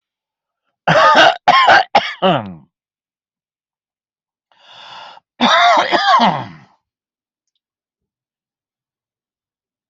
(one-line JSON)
{"expert_labels": [{"quality": "good", "cough_type": "wet", "dyspnea": false, "wheezing": true, "stridor": false, "choking": true, "congestion": false, "nothing": false, "diagnosis": "obstructive lung disease", "severity": "mild"}], "gender": "female", "respiratory_condition": false, "fever_muscle_pain": false, "status": "healthy"}